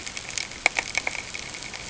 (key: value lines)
label: ambient
recorder: HydroMoth